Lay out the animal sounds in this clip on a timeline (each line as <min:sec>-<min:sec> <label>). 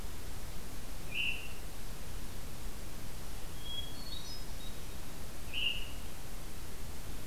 0:01.0-0:01.7 Veery (Catharus fuscescens)
0:03.4-0:05.4 Hermit Thrush (Catharus guttatus)
0:05.4-0:06.1 Veery (Catharus fuscescens)